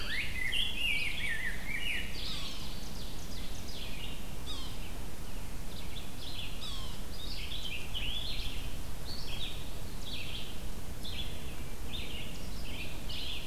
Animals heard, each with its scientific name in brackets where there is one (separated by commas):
Red-eyed Vireo (Vireo olivaceus), Ovenbird (Seiurus aurocapilla), Rose-breasted Grosbeak (Pheucticus ludovicianus), Yellow-bellied Sapsucker (Sphyrapicus varius)